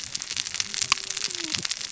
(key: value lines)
label: biophony, cascading saw
recorder: SoundTrap 600 or HydroMoth